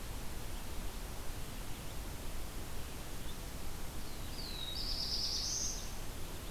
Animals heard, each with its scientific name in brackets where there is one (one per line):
Black-throated Blue Warbler (Setophaga caerulescens)